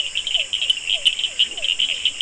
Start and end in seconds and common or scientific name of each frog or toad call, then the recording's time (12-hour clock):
0.0	2.2	Cochran's lime tree frog
0.3	2.2	Physalaemus cuvieri
1.5	2.0	Leptodactylus latrans
8:15pm